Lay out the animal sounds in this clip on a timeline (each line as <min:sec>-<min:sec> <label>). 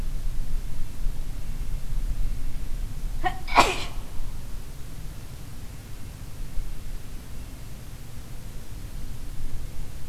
0:05.5-0:07.8 Red-breasted Nuthatch (Sitta canadensis)